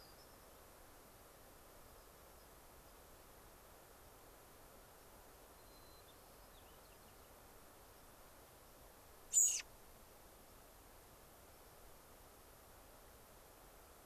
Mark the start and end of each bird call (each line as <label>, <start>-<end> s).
unidentified bird, 0.0-0.5 s
unidentified bird, 1.8-2.9 s
White-crowned Sparrow (Zonotrichia leucophrys), 5.5-7.3 s
American Robin (Turdus migratorius), 9.3-9.6 s